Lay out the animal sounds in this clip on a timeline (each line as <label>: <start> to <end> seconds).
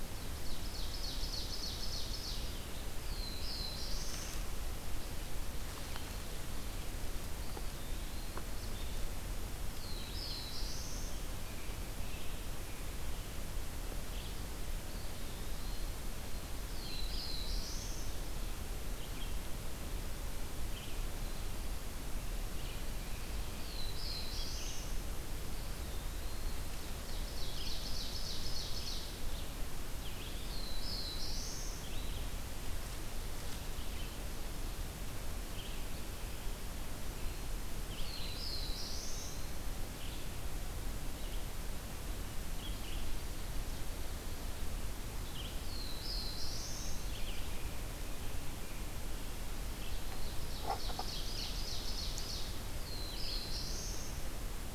Ovenbird (Seiurus aurocapilla): 0.0 to 2.8 seconds
Black-throated Blue Warbler (Setophaga caerulescens): 2.5 to 4.9 seconds
Eastern Wood-Pewee (Contopus virens): 7.3 to 8.6 seconds
Black-throated Blue Warbler (Setophaga caerulescens): 9.1 to 11.6 seconds
Eastern Wood-Pewee (Contopus virens): 14.8 to 16.1 seconds
Black-throated Blue Warbler (Setophaga caerulescens): 16.1 to 18.6 seconds
Black-throated Blue Warbler (Setophaga caerulescens): 23.0 to 25.5 seconds
Eastern Wood-Pewee (Contopus virens): 25.5 to 26.8 seconds
Ovenbird (Seiurus aurocapilla): 26.9 to 29.4 seconds
Black-throated Blue Warbler (Setophaga caerulescens): 29.6 to 32.0 seconds
Black-throated Blue Warbler (Setophaga caerulescens): 37.4 to 39.8 seconds
Black-throated Blue Warbler (Setophaga caerulescens): 45.3 to 47.8 seconds
Ovenbird (Seiurus aurocapilla): 49.8 to 52.6 seconds
Black-throated Blue Warbler (Setophaga caerulescens): 52.1 to 54.6 seconds